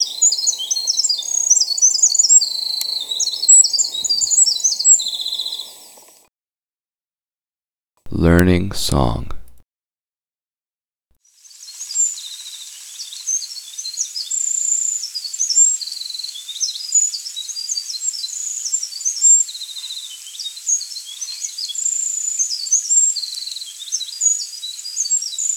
Can a person's voice be heard?
yes